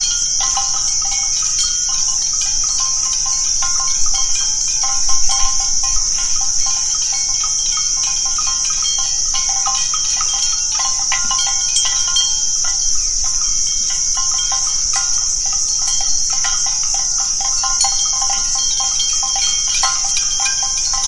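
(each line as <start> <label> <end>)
0.0 Continuous ringing of cattle bells without a specific rhythm. 21.1
0.0 Crickets chirping consistently in the background. 21.1
1.0 Very faint sounds of wood hitting a surface repeatedly with occasional pauses. 21.1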